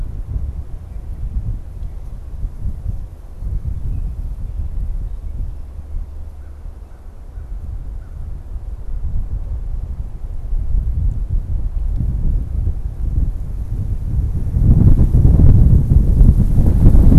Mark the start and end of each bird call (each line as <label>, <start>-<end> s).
Red-winged Blackbird (Agelaius phoeniceus), 3.7-4.3 s
American Crow (Corvus brachyrhynchos), 6.3-8.4 s